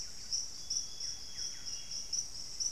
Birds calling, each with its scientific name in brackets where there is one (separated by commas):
Amazonian Grosbeak (Cyanoloxia rothschildii), unidentified bird, Buff-breasted Wren (Cantorchilus leucotis)